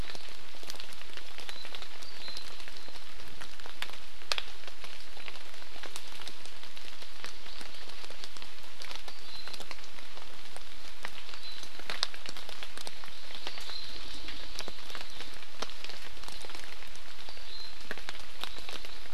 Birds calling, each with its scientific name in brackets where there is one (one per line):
Hawaii Amakihi (Chlorodrepanis virens)